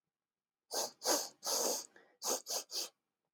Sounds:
Sniff